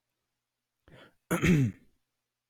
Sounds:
Throat clearing